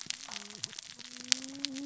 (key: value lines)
label: biophony, cascading saw
recorder: SoundTrap 600 or HydroMoth